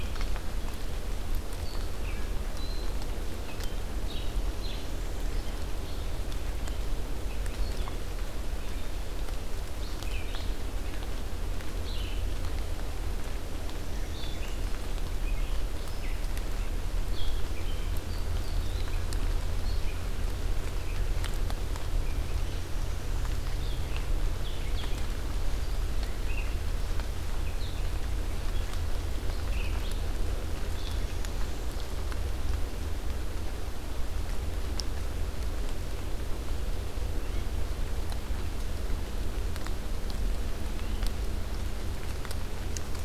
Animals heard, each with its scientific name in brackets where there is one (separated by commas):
Northern Parula (Setophaga americana), Red-eyed Vireo (Vireo olivaceus)